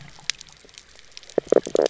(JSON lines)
{"label": "biophony, knock croak", "recorder": "SoundTrap 300"}